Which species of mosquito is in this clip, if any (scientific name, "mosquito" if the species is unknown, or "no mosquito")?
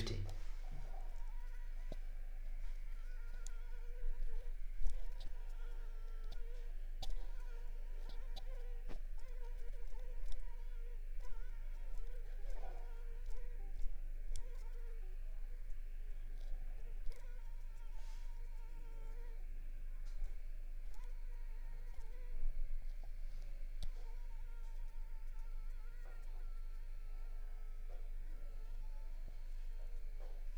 Anopheles arabiensis